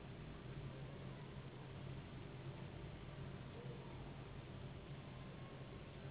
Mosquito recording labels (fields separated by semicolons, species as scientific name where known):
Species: Anopheles gambiae s.s.; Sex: female; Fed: unfed; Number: one; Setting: insect culture